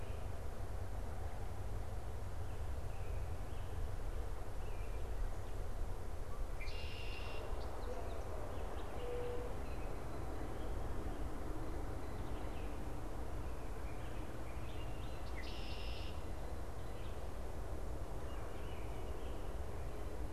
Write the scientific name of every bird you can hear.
Agelaius phoeniceus, Zenaida macroura, unidentified bird